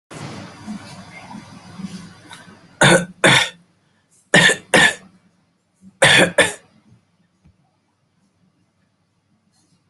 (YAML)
expert_labels:
- quality: good
  cough_type: dry
  dyspnea: false
  wheezing: false
  stridor: false
  choking: false
  congestion: false
  nothing: true
  diagnosis: COVID-19
  severity: mild
age: 31
gender: male
respiratory_condition: true
fever_muscle_pain: false
status: symptomatic